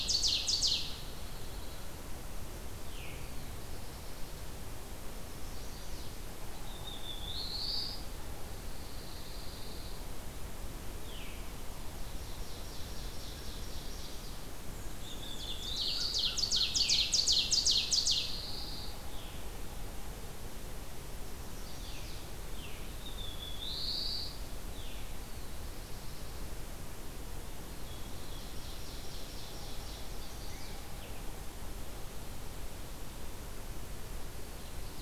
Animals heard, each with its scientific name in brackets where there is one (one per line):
Ovenbird (Seiurus aurocapilla)
Veery (Catharus fuscescens)
Black-throated Blue Warbler (Setophaga caerulescens)
Chestnut-sided Warbler (Setophaga pensylvanica)
Pine Warbler (Setophaga pinus)